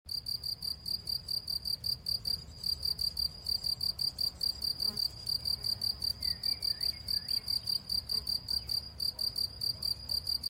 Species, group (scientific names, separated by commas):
Gryllus campestris, Orthoptera